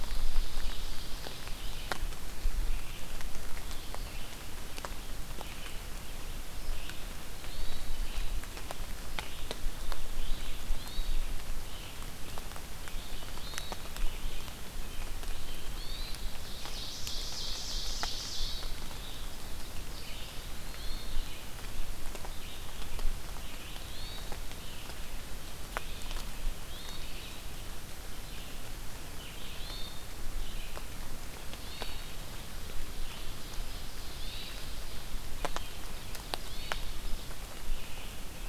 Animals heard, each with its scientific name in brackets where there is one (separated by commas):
Ovenbird (Seiurus aurocapilla), Red-eyed Vireo (Vireo olivaceus), Hermit Thrush (Catharus guttatus)